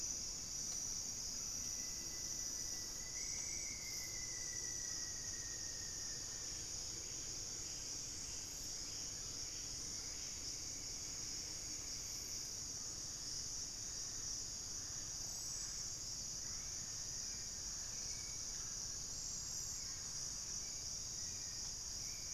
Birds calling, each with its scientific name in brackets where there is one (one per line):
Hauxwell's Thrush (Turdus hauxwelli)
Buff-breasted Wren (Cantorchilus leucotis)
unidentified bird
Scale-breasted Woodpecker (Celeus grammicus)
Rufous-fronted Antthrush (Formicarius rufifrons)
Collared Trogon (Trogon collaris)